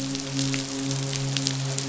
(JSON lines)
{"label": "biophony, midshipman", "recorder": "SoundTrap 500"}